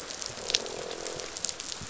{"label": "biophony, croak", "recorder": "SoundTrap 500"}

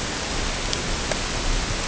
{"label": "ambient", "recorder": "HydroMoth"}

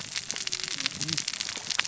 {"label": "biophony, cascading saw", "recorder": "SoundTrap 600 or HydroMoth"}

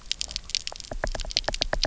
{"label": "biophony, knock", "recorder": "SoundTrap 300"}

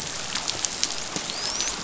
{"label": "biophony, dolphin", "recorder": "SoundTrap 500"}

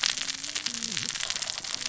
{"label": "biophony, cascading saw", "recorder": "SoundTrap 600 or HydroMoth"}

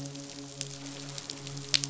{"label": "biophony, midshipman", "recorder": "SoundTrap 500"}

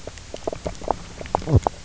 {"label": "biophony, knock croak", "recorder": "SoundTrap 300"}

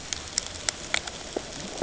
{"label": "ambient", "recorder": "HydroMoth"}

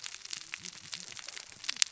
{"label": "biophony, cascading saw", "recorder": "SoundTrap 600 or HydroMoth"}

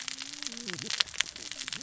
{"label": "biophony, cascading saw", "recorder": "SoundTrap 600 or HydroMoth"}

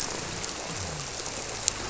{"label": "biophony", "recorder": "SoundTrap 300"}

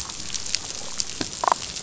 {"label": "biophony, damselfish", "recorder": "SoundTrap 500"}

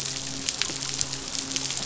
{"label": "biophony, midshipman", "recorder": "SoundTrap 500"}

